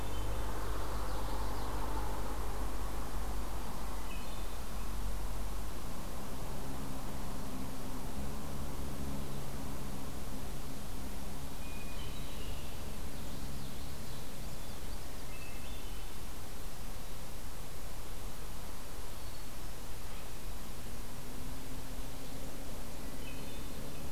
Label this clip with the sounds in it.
Hermit Thrush, Common Yellowthroat